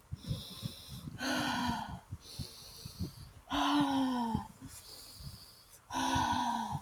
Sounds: Sigh